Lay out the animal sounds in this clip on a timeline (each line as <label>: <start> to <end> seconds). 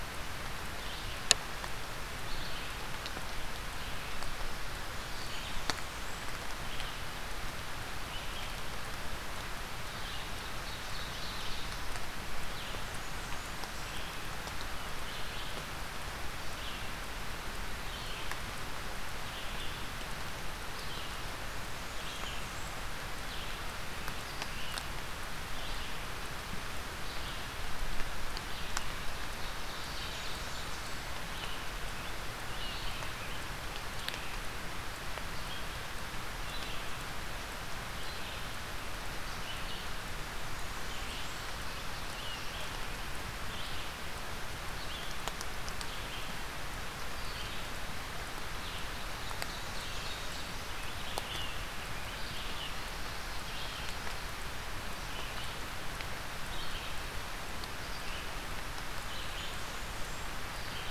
Red-eyed Vireo (Vireo olivaceus): 0.0 to 48.8 seconds
Blackburnian Warbler (Setophaga fusca): 5.0 to 6.4 seconds
Ovenbird (Seiurus aurocapilla): 9.7 to 12.0 seconds
Blackburnian Warbler (Setophaga fusca): 12.4 to 14.1 seconds
Blackburnian Warbler (Setophaga fusca): 21.2 to 22.9 seconds
Ovenbird (Seiurus aurocapilla): 29.2 to 31.2 seconds
Blackburnian Warbler (Setophaga fusca): 29.7 to 31.1 seconds
Scarlet Tanager (Piranga olivacea): 31.8 to 34.4 seconds
Blackburnian Warbler (Setophaga fusca): 40.1 to 41.6 seconds
Scarlet Tanager (Piranga olivacea): 41.5 to 42.9 seconds
Ovenbird (Seiurus aurocapilla): 48.9 to 50.3 seconds
Blackburnian Warbler (Setophaga fusca): 49.3 to 50.6 seconds
Red-eyed Vireo (Vireo olivaceus): 50.0 to 60.9 seconds
Scarlet Tanager (Piranga olivacea): 50.5 to 52.2 seconds
Blackburnian Warbler (Setophaga fusca): 58.8 to 60.3 seconds